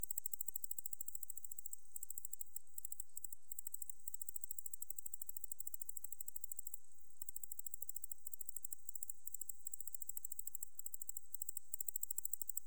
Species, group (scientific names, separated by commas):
Decticus albifrons, Orthoptera